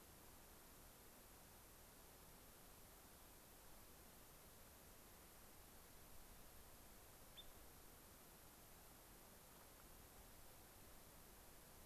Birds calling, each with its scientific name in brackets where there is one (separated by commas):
Spotted Sandpiper (Actitis macularius)